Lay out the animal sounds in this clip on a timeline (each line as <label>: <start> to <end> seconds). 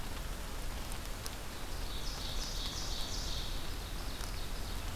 Ovenbird (Seiurus aurocapilla): 1.5 to 5.0 seconds